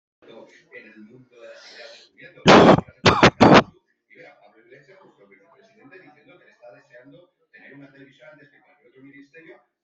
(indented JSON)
{
  "expert_labels": [
    {
      "quality": "poor",
      "cough_type": "unknown",
      "dyspnea": false,
      "wheezing": false,
      "stridor": false,
      "choking": false,
      "congestion": false,
      "nothing": true,
      "diagnosis": "healthy cough",
      "severity": "unknown"
    }
  ]
}